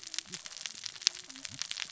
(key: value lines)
label: biophony, cascading saw
recorder: SoundTrap 600 or HydroMoth